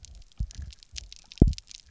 {"label": "biophony, double pulse", "recorder": "SoundTrap 300"}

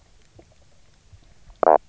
{"label": "biophony, knock croak", "recorder": "SoundTrap 300"}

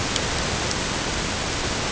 {"label": "ambient", "recorder": "HydroMoth"}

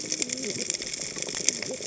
{"label": "biophony, cascading saw", "recorder": "HydroMoth"}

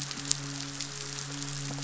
{"label": "biophony, midshipman", "recorder": "SoundTrap 500"}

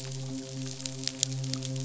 {"label": "biophony, midshipman", "recorder": "SoundTrap 500"}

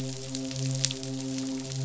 {"label": "biophony, midshipman", "recorder": "SoundTrap 500"}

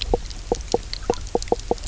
{"label": "biophony, knock croak", "recorder": "SoundTrap 300"}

